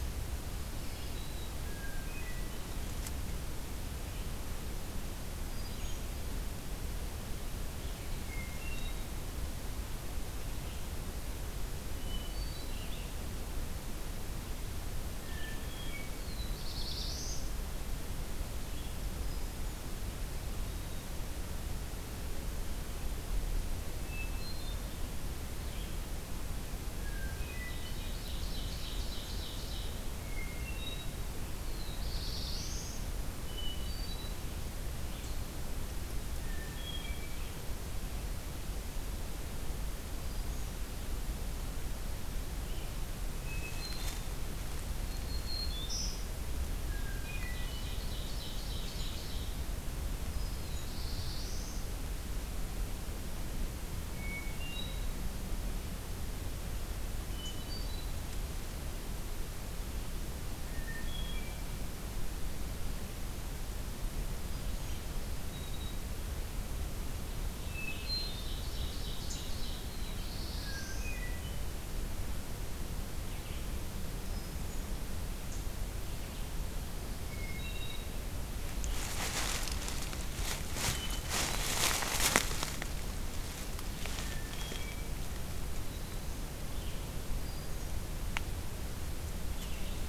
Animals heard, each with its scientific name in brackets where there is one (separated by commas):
Black-throated Green Warbler (Setophaga virens), Ovenbird (Seiurus aurocapilla), Hermit Thrush (Catharus guttatus), Black-throated Blue Warbler (Setophaga caerulescens), Blackburnian Warbler (Setophaga fusca), Red-eyed Vireo (Vireo olivaceus)